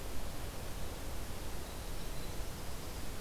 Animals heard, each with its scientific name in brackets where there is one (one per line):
Winter Wren (Troglodytes hiemalis)